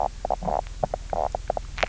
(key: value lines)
label: biophony, knock croak
recorder: SoundTrap 300